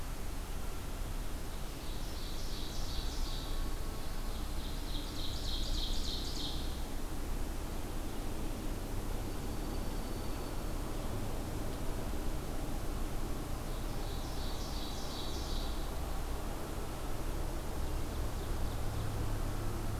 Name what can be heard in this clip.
Ovenbird, Dark-eyed Junco